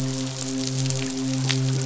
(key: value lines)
label: biophony, midshipman
recorder: SoundTrap 500